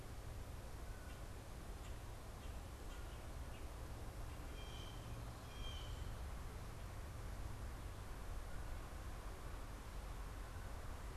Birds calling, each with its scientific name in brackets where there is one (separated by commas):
Blue Jay (Cyanocitta cristata)